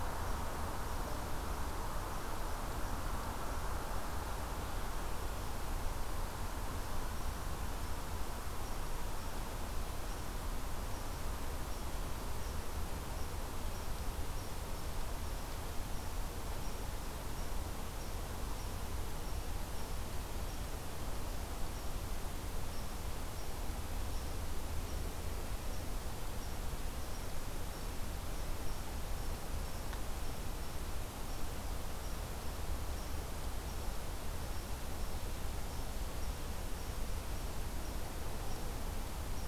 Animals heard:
forest ambience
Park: Marsh-Billings-Rockefeller National Historical Park